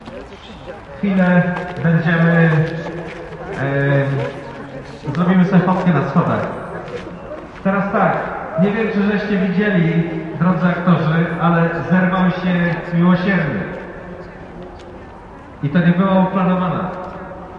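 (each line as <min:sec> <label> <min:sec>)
0:00.0 A man is speaking into a microphone. 0:17.6
0:00.0 The audience murmurs. 0:17.6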